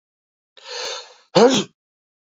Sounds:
Sneeze